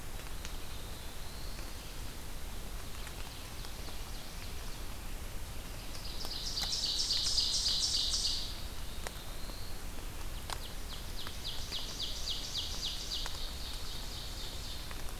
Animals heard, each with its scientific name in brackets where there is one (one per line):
Ovenbird (Seiurus aurocapilla)
Black-throated Blue Warbler (Setophaga caerulescens)